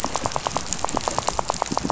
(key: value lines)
label: biophony, rattle
recorder: SoundTrap 500